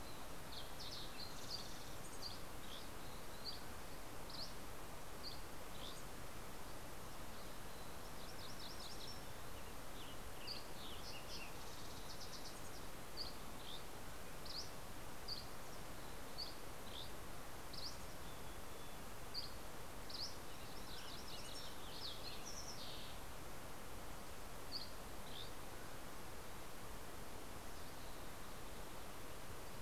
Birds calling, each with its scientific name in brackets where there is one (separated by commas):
MacGillivray's Warbler (Geothlypis tolmiei), Mountain Chickadee (Poecile gambeli), Dusky Flycatcher (Empidonax oberholseri), Fox Sparrow (Passerella iliaca), Western Tanager (Piranga ludoviciana)